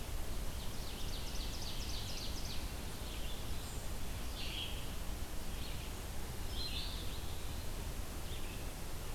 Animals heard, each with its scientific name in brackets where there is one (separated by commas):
Ovenbird (Seiurus aurocapilla), Red-eyed Vireo (Vireo olivaceus), Eastern Wood-Pewee (Contopus virens)